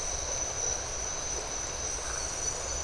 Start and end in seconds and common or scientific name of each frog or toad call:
1.9	2.3	Phyllomedusa distincta